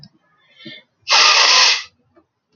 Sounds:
Sniff